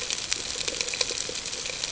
{"label": "ambient", "recorder": "HydroMoth"}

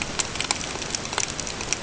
{"label": "ambient", "recorder": "HydroMoth"}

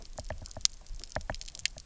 {"label": "biophony, knock", "recorder": "SoundTrap 300"}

